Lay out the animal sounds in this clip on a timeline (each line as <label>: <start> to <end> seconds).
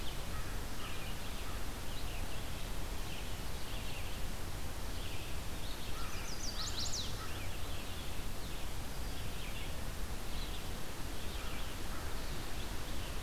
Red-eyed Vireo (Vireo olivaceus): 0.0 to 13.2 seconds
American Crow (Corvus brachyrhynchos): 0.2 to 1.0 seconds
American Crow (Corvus brachyrhynchos): 5.9 to 7.4 seconds
Chestnut-sided Warbler (Setophaga pensylvanica): 5.9 to 7.2 seconds